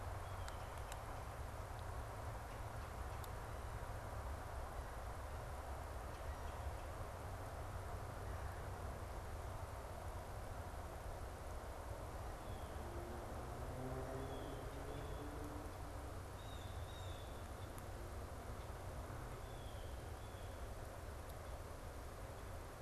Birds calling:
Blue Jay (Cyanocitta cristata)
Red-bellied Woodpecker (Melanerpes carolinus)

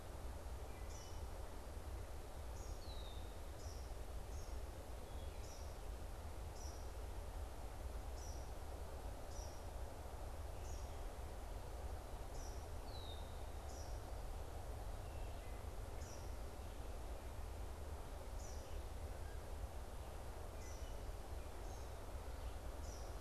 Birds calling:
Red-winged Blackbird (Agelaius phoeniceus)
Wood Thrush (Hylocichla mustelina)
Eastern Kingbird (Tyrannus tyrannus)

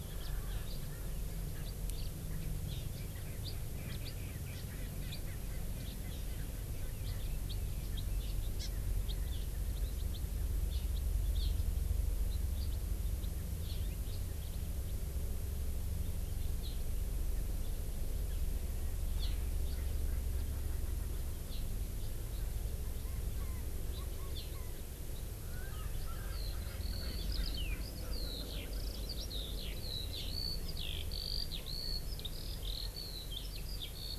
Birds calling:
Erckel's Francolin (Pternistis erckelii)
House Finch (Haemorhous mexicanus)
Eurasian Skylark (Alauda arvensis)
Hawaii Amakihi (Chlorodrepanis virens)

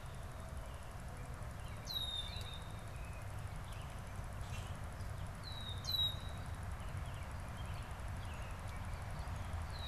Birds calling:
Common Grackle (Quiscalus quiscula)
American Robin (Turdus migratorius)
Red-winged Blackbird (Agelaius phoeniceus)

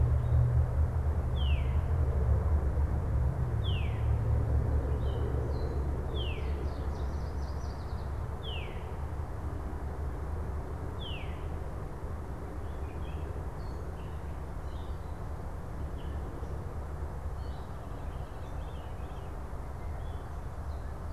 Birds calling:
Veery (Catharus fuscescens)
Chestnut-sided Warbler (Setophaga pensylvanica)
Yellow Warbler (Setophaga petechia)
Gray Catbird (Dumetella carolinensis)

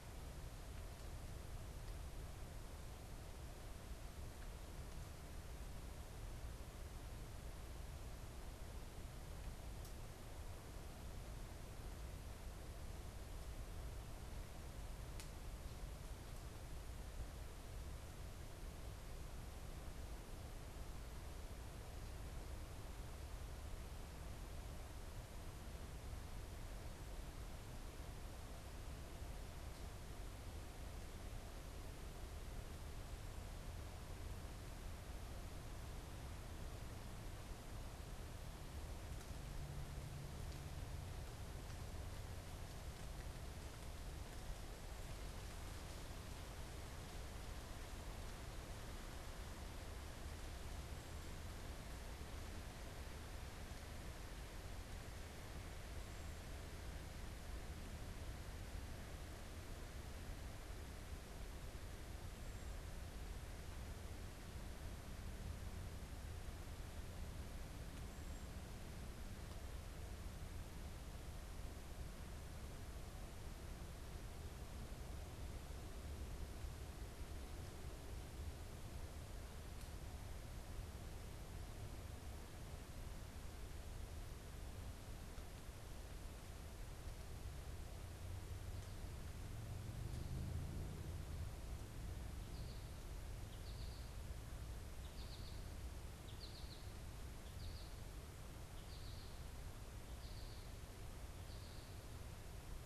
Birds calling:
American Goldfinch (Spinus tristis)

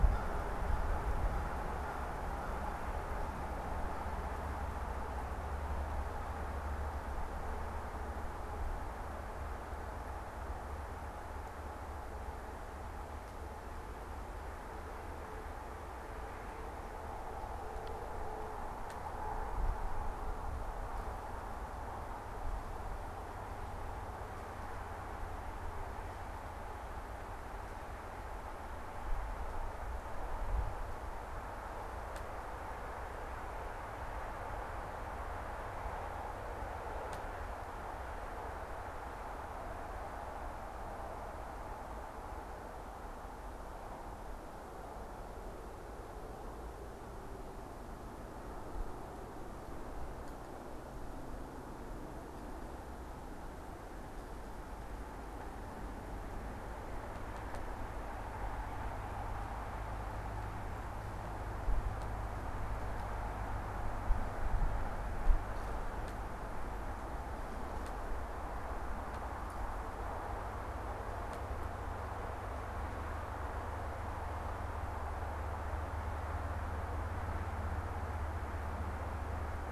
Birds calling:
American Crow (Corvus brachyrhynchos)

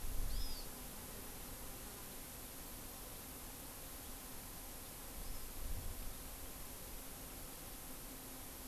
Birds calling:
Hawaii Amakihi (Chlorodrepanis virens)

